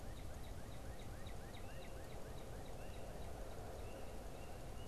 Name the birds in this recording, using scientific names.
Cardinalis cardinalis